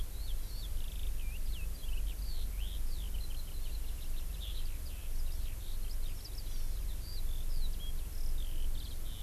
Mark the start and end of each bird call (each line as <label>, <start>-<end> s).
Eurasian Skylark (Alauda arvensis), 0.0-9.2 s
Hawaii Amakihi (Chlorodrepanis virens), 6.5-6.8 s